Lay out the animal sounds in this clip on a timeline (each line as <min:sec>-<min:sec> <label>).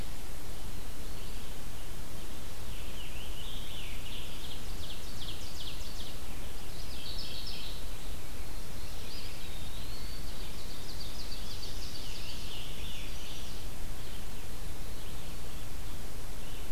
0:00.0-0:16.7 Red-eyed Vireo (Vireo olivaceus)
0:02.3-0:04.8 Scarlet Tanager (Piranga olivacea)
0:03.9-0:06.4 Ovenbird (Seiurus aurocapilla)
0:06.4-0:08.0 Mourning Warbler (Geothlypis philadelphia)
0:08.6-0:09.7 Mourning Warbler (Geothlypis philadelphia)
0:08.9-0:10.7 Eastern Wood-Pewee (Contopus virens)
0:10.3-0:12.7 Ovenbird (Seiurus aurocapilla)
0:11.3-0:13.6 Scarlet Tanager (Piranga olivacea)
0:12.5-0:13.9 Chestnut-sided Warbler (Setophaga pensylvanica)